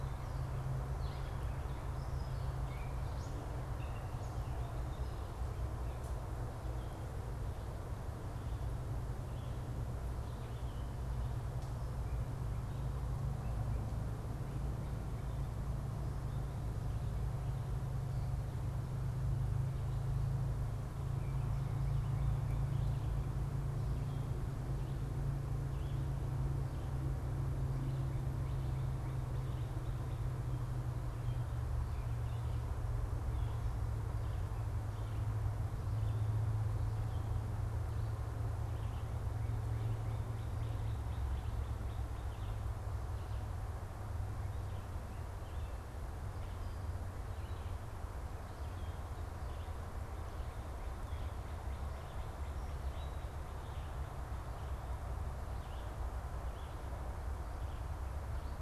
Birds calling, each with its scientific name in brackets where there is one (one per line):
Red-eyed Vireo (Vireo olivaceus)
unidentified bird
Northern Cardinal (Cardinalis cardinalis)
Gray Catbird (Dumetella carolinensis)